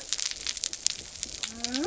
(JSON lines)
{"label": "biophony", "recorder": "SoundTrap 300"}